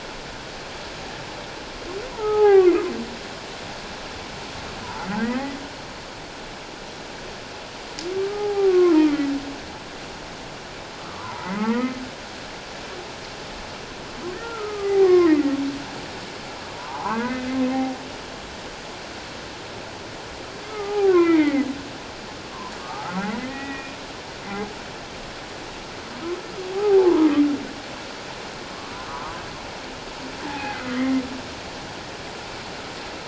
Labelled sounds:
2.1	2.8	humpback whale, 0.78 to 1.7 kHz
4.8	5.6	humpback whale, 0.81 to 2.0 kHz
8.1	9.3	humpback whale, 0.78 to 2.2 kHz
11.0	12.0	humpback whale, 0.78 to 2.3 kHz
14.4	15.6	humpback whale, 0.78 to 2.2 kHz
16.7	18.0	humpback whale, 0.78 to 2.1 kHz
20.7	21.6	humpback whale, 0.78 to 2.7 kHz
22.8	24.0	humpback whale, 1.1 to 2.5 kHz
26.7	27.3	humpback whale, 0.78 to 1.3 kHz
28.7	29.4	humpback whale, 0.94 to 1.3 kHz
30.4	30.9	humpback whale, 0.78 to 2.1 kHz

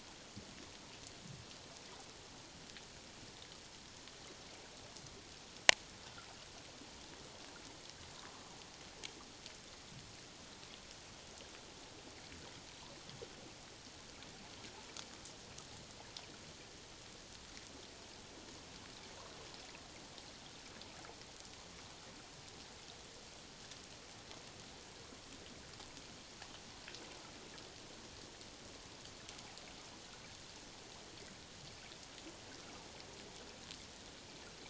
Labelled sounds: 8.2	8.5	water noise, 0.97 to 1.2 kHz

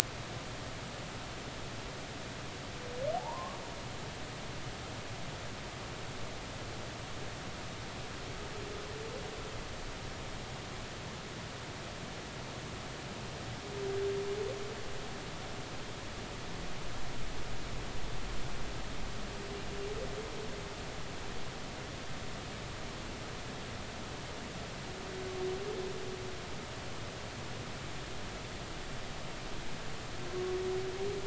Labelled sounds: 3.1	3.6	humpback whale, 0.80 to 1.2 kHz

